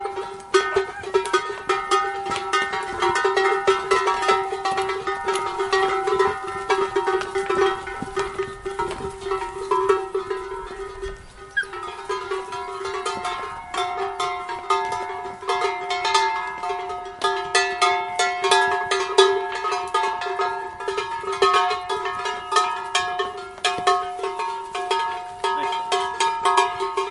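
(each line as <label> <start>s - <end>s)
Muffled thudding sounds of cows' footsteps on soft terrain. 0.0s - 27.1s
Multiple cowbells ringing chaotically in an irregular pattern. 0.0s - 27.1s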